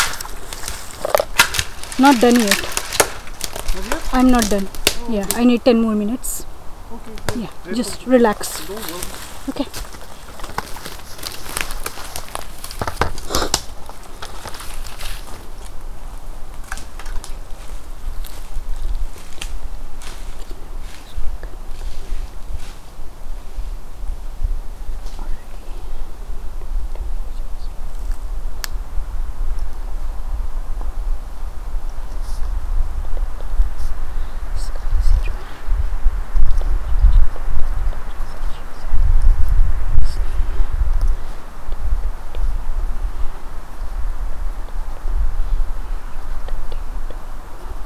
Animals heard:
forest ambience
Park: Acadia National Park